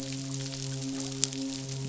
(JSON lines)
{"label": "biophony, midshipman", "recorder": "SoundTrap 500"}